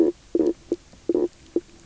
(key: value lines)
label: biophony, knock croak
recorder: SoundTrap 300